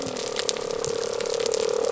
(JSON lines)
{"label": "biophony", "recorder": "SoundTrap 300"}